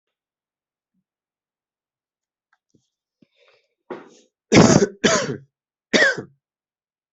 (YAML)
expert_labels:
- quality: good
  cough_type: wet
  dyspnea: false
  wheezing: false
  stridor: false
  choking: false
  congestion: false
  nothing: true
  diagnosis: upper respiratory tract infection
  severity: mild
age: 35
gender: male
respiratory_condition: false
fever_muscle_pain: false
status: symptomatic